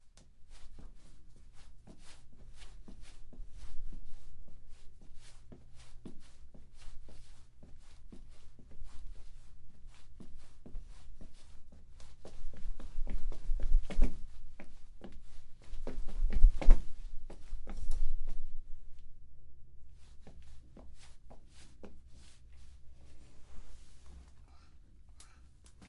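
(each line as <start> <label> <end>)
0.0 Footsteps of someone walking slowly indoors. 12.4
12.4 Footsteps indoors. 15.8
16.1 Someone is walking quickly indoors. 16.9
16.9 Someone is walking indoors with varying rhythms. 25.9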